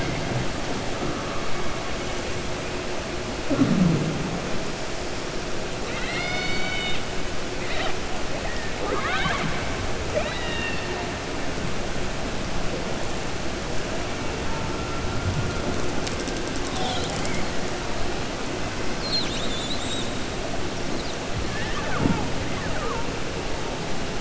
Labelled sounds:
5.8	7.0	killer whale, 0.76 to 5.9 kHz
10.0	10.9	killer whale, 0.46 to 4.5 kHz

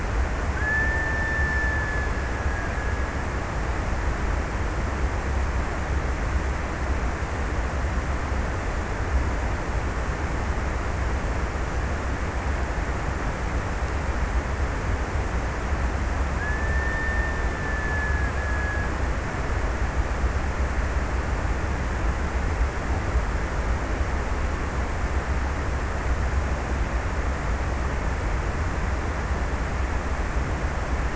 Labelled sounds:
0.0	3.8	killer whale, Bigg's (transient), 1.3 to 2.0 kHz
15.8	19.9	killer whale, Bigg's (transient), 1.4 to 2.0 kHz

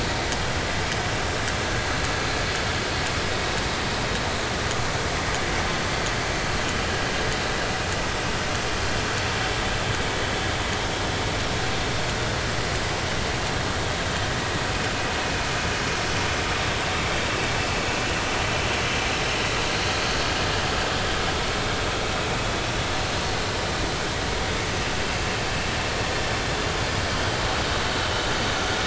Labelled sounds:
18.8	19.0	vessel noise, 6.3 to 6.5 kHz

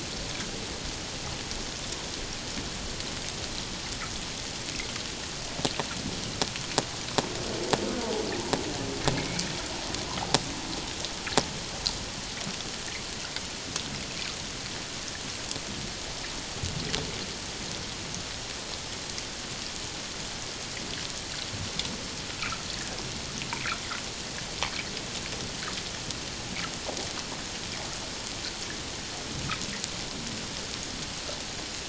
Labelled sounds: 9.1	9.5	humpback whale, 2.1 to 2.5 kHz

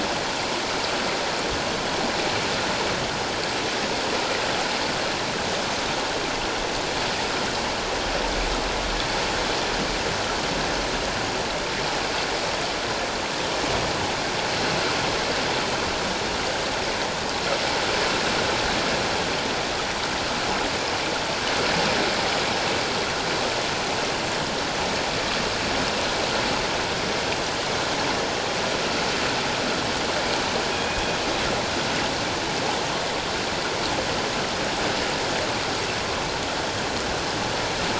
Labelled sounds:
30.7	31.0	killer whale, northern resident, G clan, call N24ii, 2.4 to 2.5 kHz

